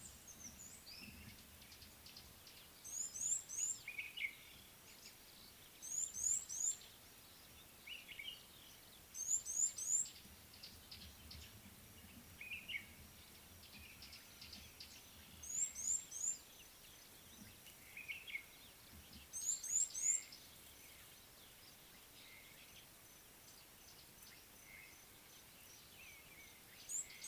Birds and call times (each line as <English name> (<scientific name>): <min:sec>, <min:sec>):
Red-cheeked Cordonbleu (Uraeginthus bengalus): 0:06.3, 0:15.8
Gray-backed Camaroptera (Camaroptera brevicaudata): 0:10.7
Common Bulbul (Pycnonotus barbatus): 0:18.0
Slate-colored Boubou (Laniarius funebris): 0:24.7